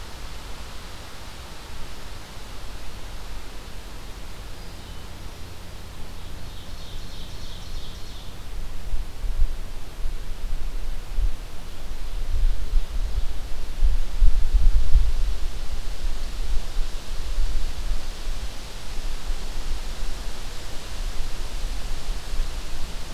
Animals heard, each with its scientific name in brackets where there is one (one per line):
Ovenbird (Seiurus aurocapilla)